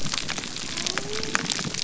{"label": "biophony", "recorder": "SoundTrap 300"}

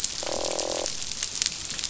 {"label": "biophony, croak", "recorder": "SoundTrap 500"}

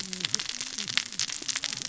{"label": "biophony, cascading saw", "recorder": "SoundTrap 600 or HydroMoth"}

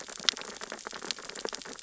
{"label": "biophony, sea urchins (Echinidae)", "recorder": "SoundTrap 600 or HydroMoth"}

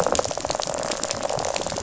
{"label": "biophony, rattle", "recorder": "SoundTrap 500"}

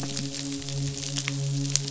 {"label": "biophony, midshipman", "recorder": "SoundTrap 500"}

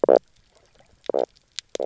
{"label": "biophony, knock croak", "recorder": "SoundTrap 300"}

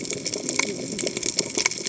{"label": "biophony, cascading saw", "recorder": "HydroMoth"}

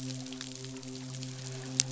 {"label": "biophony, midshipman", "recorder": "SoundTrap 500"}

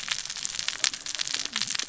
{"label": "biophony, cascading saw", "recorder": "SoundTrap 600 or HydroMoth"}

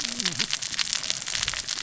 {"label": "biophony, cascading saw", "recorder": "SoundTrap 600 or HydroMoth"}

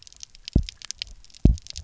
{"label": "biophony, double pulse", "recorder": "SoundTrap 300"}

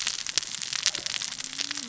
{"label": "biophony, cascading saw", "recorder": "SoundTrap 600 or HydroMoth"}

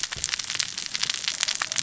{"label": "biophony, cascading saw", "recorder": "SoundTrap 600 or HydroMoth"}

